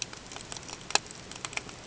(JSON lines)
{"label": "ambient", "recorder": "HydroMoth"}